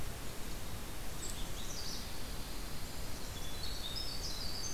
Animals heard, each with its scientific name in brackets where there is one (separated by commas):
Golden-crowned Kinglet (Regulus satrapa), Pine Warbler (Setophaga pinus), Winter Wren (Troglodytes hiemalis), Magnolia Warbler (Setophaga magnolia), Black-capped Chickadee (Poecile atricapillus)